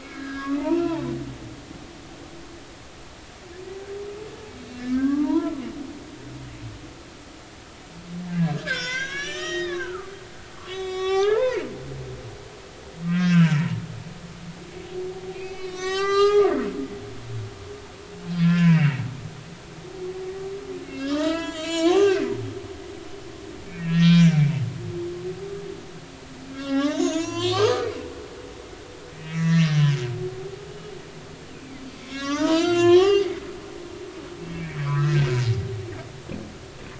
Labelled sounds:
0.0	1.0	humpback whale, 0.83 to 5.1 kHz
4.8	5.6	humpback whale, 0.83 to 1.9 kHz
8.3	10.1	humpback whale, 0.93 to 7.3 kHz
10.5	11.6	humpback whale, 0.80 to 7.7 kHz
13.1	13.6	humpback whale, 1.3 to 3.3 kHz
15.3	16.6	humpback whale, 0.80 to 8.0 kHz
18.4	19.0	humpback whale, 0.93 to 2.9 kHz
20.8	22.3	humpback whale, 0.80 to 7.4 kHz
23.7	24.4	humpback whale, 1.3 to 5.8 kHz
26.5	28.0	humpback whale, 0.90 to 7.5 kHz
28.6	30.0	humpback whale, 1.8 to 6.6 kHz
31.9	34.0	humpback whale, 0.86 to 7.4 kHz
34.5	35.3	humpback whale, 0.96 to 2.6 kHz

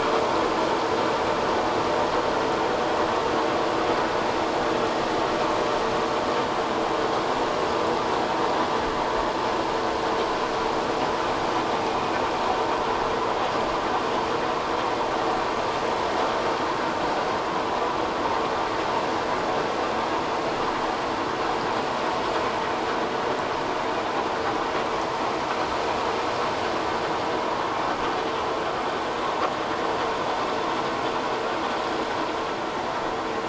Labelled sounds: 11.8	12.1	vessel noise, 2.4 to 2.6 kHz

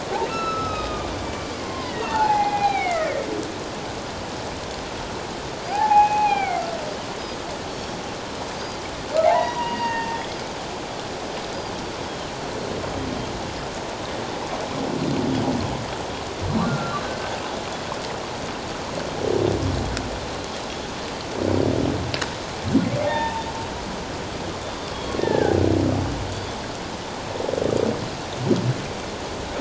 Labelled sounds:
0.3	1.1	humpback whale, 1.2 to 6.8 kHz
1.6	3.2	humpback whale, 0.78 to 4.1 kHz
5.7	6.6	humpback whale, 0.78 to 2.6 kHz
7.7	8.0	Pacific white-sided dolphin, 5.4 to 5.7 kHz
9.2	10.4	humpback whale, 0.78 to 4.8 kHz
16.6	17.0	humpback whale, 1.3 to 1.5 kHz
23.0	23.4	humpback whale, 0.78 to 3.7 kHz
25.2	25.6	humpback whale, 0.78 to 1.9 kHz

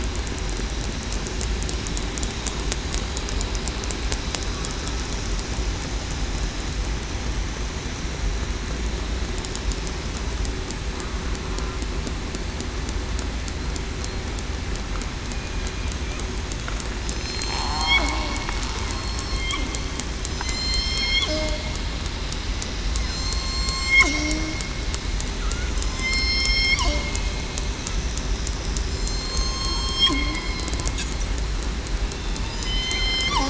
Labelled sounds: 17.1	18.0	killer whale, southern resident, 0.70 to 7.5 kHz
19.3	19.7	killer whale, southern resident, 2.1 to 2.2 kHz
20.4	21.0	killer whale, southern resident, 2.0 to 2.2 kHz
21.3	21.6	killer whale, southern resident, 0.56 to 0.66 kHz
23.0	24.0	killer whale, southern resident, 1.0 to 8.0 kHz
26.5	26.8	killer whale, southern resident, 2.1 to 2.3 kHz
28.8	29.4	killer whale, southern resident, 7.1 to 7.4 kHz
32.5	33.3	killer whale, southern resident, 4.9 to 5.3 kHz

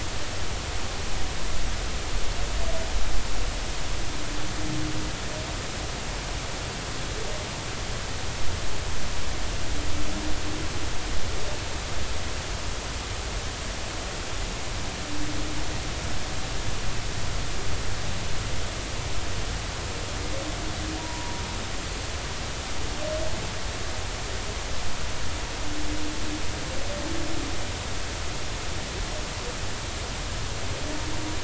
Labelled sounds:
21.0	21.4	humpback whale, 0.90 to 1.0 kHz

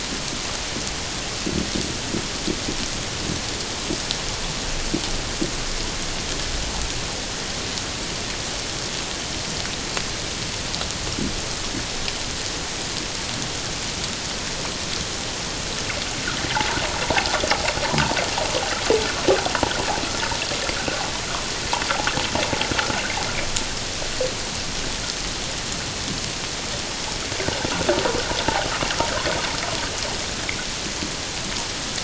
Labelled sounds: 16.5	16.8	water noise, 0.78 to 1.0 kHz

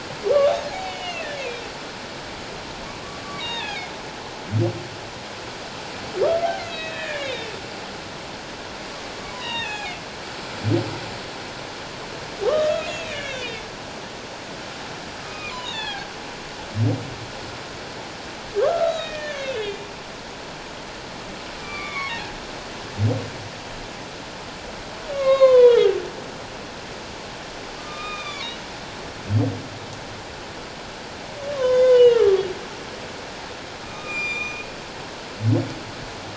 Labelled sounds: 0.2	0.5	humpback whale, 1.1 to 1.2 kHz
0.8	1.4	humpback whale, 1.6 to 3.0 kHz
3.4	3.9	humpback whale, 0.78 to 3.9 kHz
6.6	7.5	humpback whale, 1.6 to 4.3 kHz
9.3	9.9	humpback whale, 0.78 to 7.7 kHz
12.4	13.6	humpback whale, 1.0 to 3.4 kHz
15.2	16.1	humpback whale, 0.78 to 7.2 kHz
18.6	19.9	humpback whale, 1.0 to 6.7 kHz
21.6	22.1	humpback whale, 0.97 to 3.6 kHz
25.1	25.9	humpback whale, 0.88 to 6.7 kHz
27.8	28.5	humpback whale, 1.0 to 3.8 kHz
31.5	32.4	humpback whale, 0.94 to 3.7 kHz
33.8	34.7	humpback whale, 1.2 to 7.3 kHz

